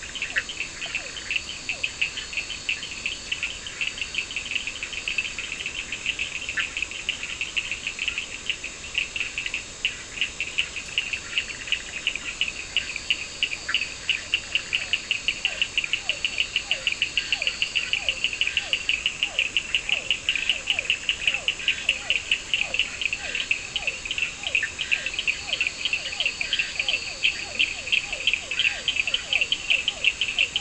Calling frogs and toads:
Boana bischoffi (Hylidae), Physalaemus cuvieri (Leptodactylidae), Elachistocleis bicolor (Microhylidae), Sphaenorhynchus surdus (Hylidae), Scinax perereca (Hylidae)
Atlantic Forest, Brazil, 11:15pm

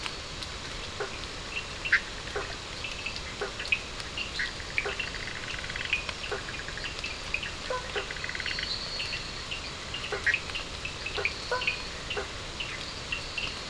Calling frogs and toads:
Boana faber (Hylidae), Sphaenorhynchus surdus (Hylidae), Boana bischoffi (Hylidae), Elachistocleis bicolor (Microhylidae)
Atlantic Forest, Brazil, 1:00am

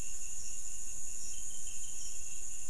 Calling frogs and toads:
Pithecopus azureus (Hylidae)
Cerrado, Brazil, 12:30am

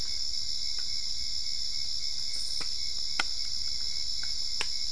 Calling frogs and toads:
none
Cerrado, Brazil, 8:15pm

